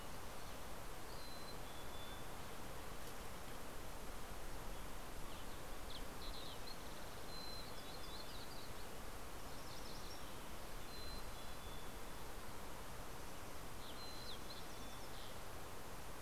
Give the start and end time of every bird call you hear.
[0.89, 2.79] Mountain Chickadee (Poecile gambeli)
[1.89, 2.58] Mountain Quail (Oreortyx pictus)
[7.18, 8.59] Mountain Chickadee (Poecile gambeli)
[10.48, 12.59] Mountain Chickadee (Poecile gambeli)
[13.19, 15.98] Green-tailed Towhee (Pipilo chlorurus)
[13.79, 15.69] Mountain Chickadee (Poecile gambeli)

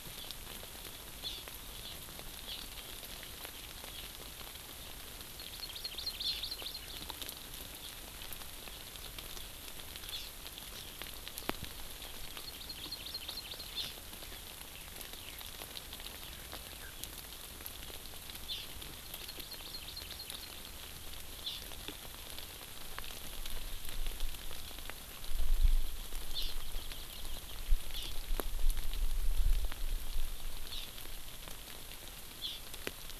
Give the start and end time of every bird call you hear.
[1.23, 1.43] Hawaii Amakihi (Chlorodrepanis virens)
[1.83, 2.03] Hawaii Amakihi (Chlorodrepanis virens)
[2.43, 2.73] Hawaii Amakihi (Chlorodrepanis virens)
[5.33, 7.03] Hawaii Amakihi (Chlorodrepanis virens)
[10.13, 10.33] Hawaii Amakihi (Chlorodrepanis virens)
[12.23, 13.93] Hawaii Amakihi (Chlorodrepanis virens)
[15.13, 15.43] Eurasian Skylark (Alauda arvensis)
[16.63, 16.93] Eurasian Skylark (Alauda arvensis)
[18.43, 18.63] Hawaii Amakihi (Chlorodrepanis virens)
[19.03, 20.53] Hawaii Amakihi (Chlorodrepanis virens)
[21.43, 21.63] Hawaii Amakihi (Chlorodrepanis virens)
[26.33, 26.53] Hawaii Amakihi (Chlorodrepanis virens)
[27.93, 28.13] Hawaii Amakihi (Chlorodrepanis virens)
[30.73, 30.83] Hawaii Amakihi (Chlorodrepanis virens)
[32.43, 32.63] Hawaii Amakihi (Chlorodrepanis virens)

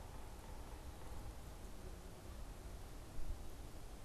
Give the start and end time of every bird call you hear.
[0.00, 1.39] Yellow-bellied Sapsucker (Sphyrapicus varius)

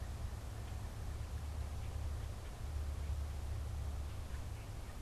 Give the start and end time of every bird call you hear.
[0.00, 5.00] Common Grackle (Quiscalus quiscula)

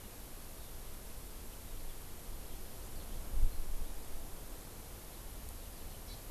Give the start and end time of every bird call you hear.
[6.05, 6.16] Hawaii Amakihi (Chlorodrepanis virens)

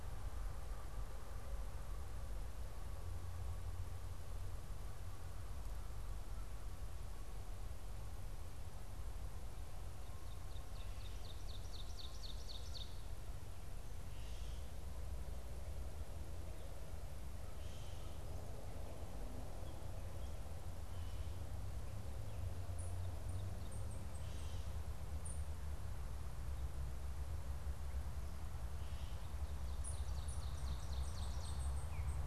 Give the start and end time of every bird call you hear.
[9.90, 13.30] Ovenbird (Seiurus aurocapilla)
[22.40, 25.70] unidentified bird
[29.40, 31.70] Ovenbird (Seiurus aurocapilla)
[29.60, 32.10] unidentified bird

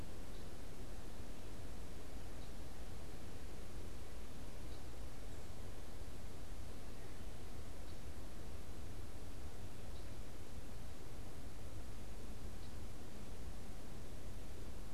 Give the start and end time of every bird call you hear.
[0.00, 13.12] Red-winged Blackbird (Agelaius phoeniceus)

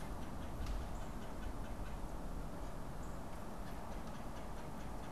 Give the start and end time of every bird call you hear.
[0.00, 5.11] Northern Cardinal (Cardinalis cardinalis)
[0.00, 5.11] Red-bellied Woodpecker (Melanerpes carolinus)

